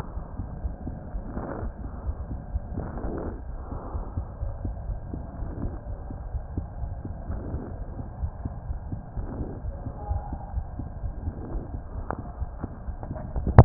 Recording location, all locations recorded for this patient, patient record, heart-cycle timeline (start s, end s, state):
aortic valve (AV)
aortic valve (AV)+pulmonary valve (PV)+tricuspid valve (TV)+mitral valve (MV)
#Age: Child
#Sex: Male
#Height: 97.0 cm
#Weight: 17.0 kg
#Pregnancy status: False
#Murmur: Absent
#Murmur locations: nan
#Most audible location: nan
#Systolic murmur timing: nan
#Systolic murmur shape: nan
#Systolic murmur grading: nan
#Systolic murmur pitch: nan
#Systolic murmur quality: nan
#Diastolic murmur timing: nan
#Diastolic murmur shape: nan
#Diastolic murmur grading: nan
#Diastolic murmur pitch: nan
#Diastolic murmur quality: nan
#Outcome: Abnormal
#Campaign: 2015 screening campaign
0.00	3.92	unannotated
3.92	4.01	S1
4.01	4.15	systole
4.15	4.23	S2
4.23	4.41	diastole
4.41	4.51	S1
4.51	4.62	systole
4.62	4.72	S2
4.72	4.87	diastole
4.87	4.95	S1
4.95	5.10	systole
5.10	5.18	S2
5.18	5.38	diastole
5.38	5.49	S1
5.49	5.61	systole
5.61	5.68	S2
5.68	5.86	diastole
5.86	5.93	S1
5.93	6.08	systole
6.08	6.16	S2
6.16	6.32	diastole
6.32	6.40	S1
6.40	6.55	systole
6.55	6.62	S2
6.62	6.81	diastole
6.81	6.88	S1
6.88	7.04	systole
7.04	7.13	S2
7.13	7.27	diastole
7.27	7.34	S1
7.34	7.51	systole
7.51	7.60	S2
7.60	13.65	unannotated